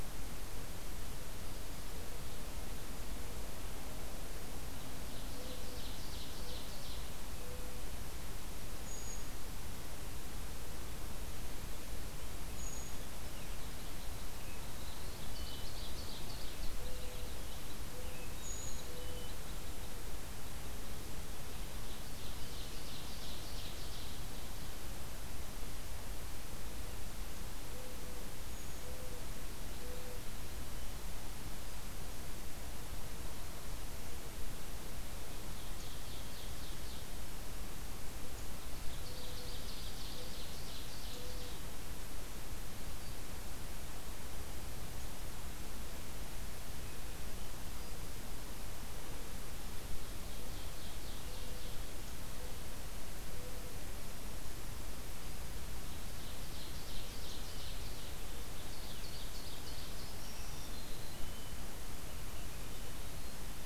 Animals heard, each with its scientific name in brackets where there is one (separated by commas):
Purple Finch (Haemorhous purpureus), Black-throated Green Warbler (Setophaga virens), Brown Creeper (Certhia americana), Red Crossbill (Loxia curvirostra), Mourning Dove (Zenaida macroura), Ovenbird (Seiurus aurocapilla)